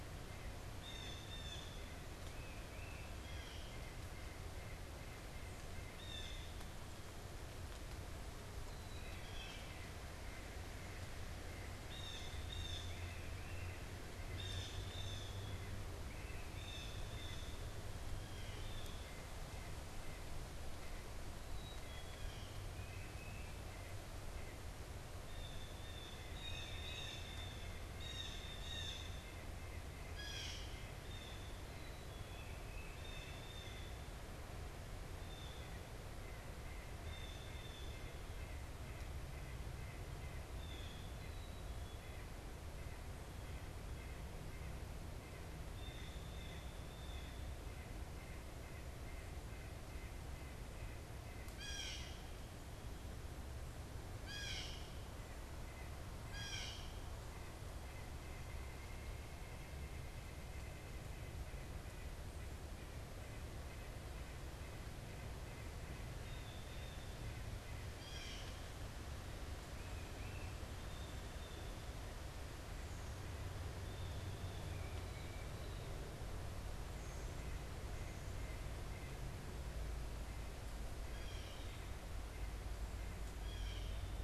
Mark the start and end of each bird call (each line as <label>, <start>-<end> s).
White-breasted Nuthatch (Sitta carolinensis), 0.0-24.7 s
Blue Jay (Cyanocitta cristata), 0.6-9.6 s
Black-capped Chickadee (Poecile atricapillus), 8.7-9.4 s
Blue Jay (Cyanocitta cristata), 11.8-22.8 s
Black-capped Chickadee (Poecile atricapillus), 21.5-22.2 s
Blue Jay (Cyanocitta cristata), 25.1-38.3 s
White-breasted Nuthatch (Sitta carolinensis), 25.2-68.5 s
Blue Jay (Cyanocitta cristata), 40.2-52.2 s
Black-capped Chickadee (Poecile atricapillus), 41.2-42.3 s
Blue Jay (Cyanocitta cristata), 54.2-57.2 s
Blue Jay (Cyanocitta cristata), 66.1-67.3 s
Blue Jay (Cyanocitta cristata), 67.9-68.7 s
Tufted Titmouse (Baeolophus bicolor), 69.6-70.6 s
Blue Jay (Cyanocitta cristata), 70.8-74.7 s
White-breasted Nuthatch (Sitta carolinensis), 74.7-83.4 s
unidentified bird, 77.0-77.4 s
Blue Jay (Cyanocitta cristata), 81.1-83.9 s